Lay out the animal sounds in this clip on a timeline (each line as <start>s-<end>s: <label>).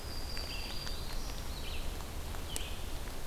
0.0s-1.8s: Black-throated Green Warbler (Setophaga virens)
0.0s-3.3s: Red-eyed Vireo (Vireo olivaceus)